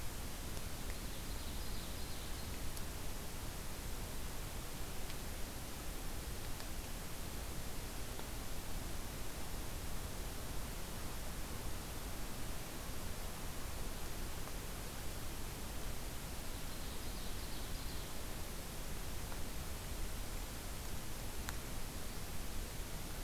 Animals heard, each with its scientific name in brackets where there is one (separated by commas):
Ovenbird (Seiurus aurocapilla)